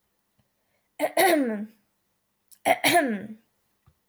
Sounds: Throat clearing